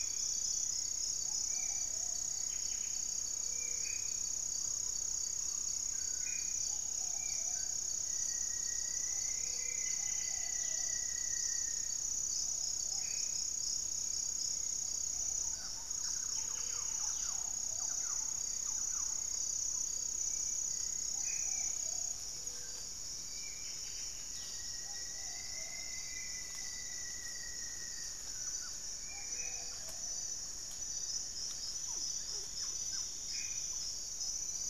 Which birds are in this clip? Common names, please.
Black-faced Antthrush, Hauxwell's Thrush, Spot-winged Antshrike, Buff-breasted Wren, Gray-fronted Dove, Gray-cowled Wood-Rail, unidentified bird, Rufous-fronted Antthrush, Thrush-like Wren, Striped Woodcreeper